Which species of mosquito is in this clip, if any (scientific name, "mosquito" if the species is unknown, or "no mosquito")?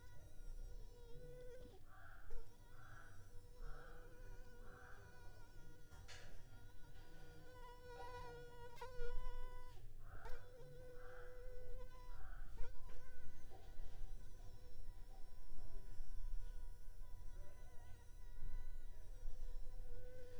Anopheles arabiensis